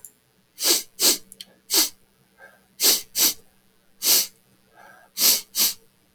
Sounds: Sniff